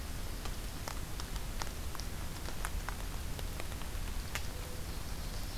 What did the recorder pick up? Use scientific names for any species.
Zenaida macroura, Seiurus aurocapilla